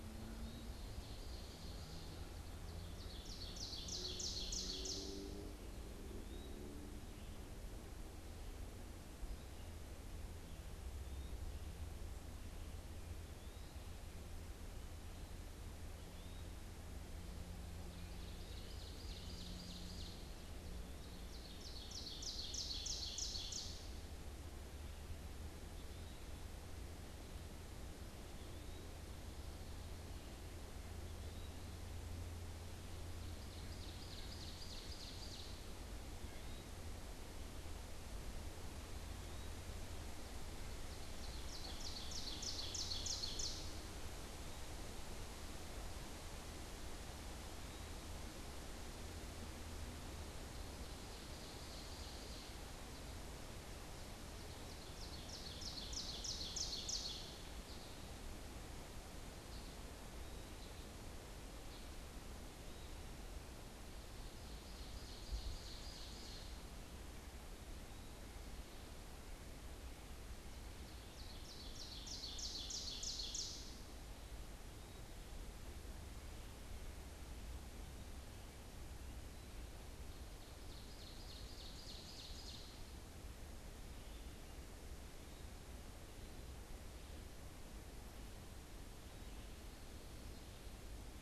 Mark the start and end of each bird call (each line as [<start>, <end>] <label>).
[0.00, 5.30] Ovenbird (Seiurus aurocapilla)
[0.30, 6.70] Eastern Wood-Pewee (Contopus virens)
[10.70, 13.90] Eastern Wood-Pewee (Contopus virens)
[15.60, 21.30] Eastern Wood-Pewee (Contopus virens)
[17.70, 24.10] Ovenbird (Seiurus aurocapilla)
[25.40, 28.90] Eastern Wood-Pewee (Contopus virens)
[30.90, 31.70] Eastern Wood-Pewee (Contopus virens)
[32.60, 35.70] Ovenbird (Seiurus aurocapilla)
[33.60, 36.80] White-breasted Nuthatch (Sitta carolinensis)
[36.00, 39.70] Eastern Wood-Pewee (Contopus virens)
[40.10, 44.00] Ovenbird (Seiurus aurocapilla)
[47.10, 48.10] Eastern Wood-Pewee (Contopus virens)
[49.70, 58.20] Ovenbird (Seiurus aurocapilla)
[59.00, 62.00] unidentified bird
[60.00, 63.00] Eastern Wood-Pewee (Contopus virens)
[63.90, 66.80] Ovenbird (Seiurus aurocapilla)
[70.40, 74.00] Ovenbird (Seiurus aurocapilla)
[79.70, 83.00] Ovenbird (Seiurus aurocapilla)